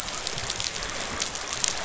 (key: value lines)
label: biophony
recorder: SoundTrap 500